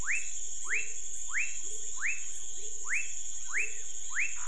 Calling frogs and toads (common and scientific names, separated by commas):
rufous frog (Leptodactylus fuscus), pepper frog (Leptodactylus labyrinthicus), Cuyaba dwarf frog (Physalaemus nattereri)